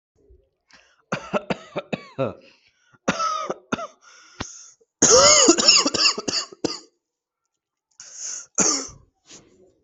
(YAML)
expert_labels:
- quality: ok
  cough_type: dry
  dyspnea: false
  wheezing: true
  stridor: false
  choking: true
  congestion: false
  nothing: false
  diagnosis: obstructive lung disease
  severity: severe
gender: female
respiratory_condition: false
fever_muscle_pain: false
status: COVID-19